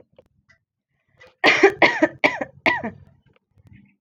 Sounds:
Cough